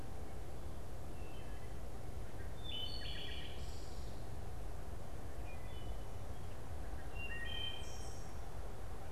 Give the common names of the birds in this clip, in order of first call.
Wood Thrush